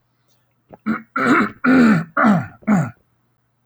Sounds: Throat clearing